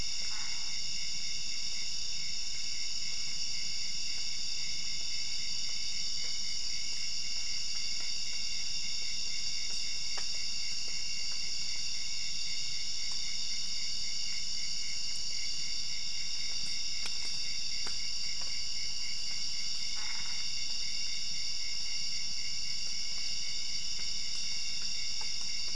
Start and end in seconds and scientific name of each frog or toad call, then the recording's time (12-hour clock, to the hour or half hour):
0.2	0.8	Boana albopunctata
19.9	20.5	Boana albopunctata
midnight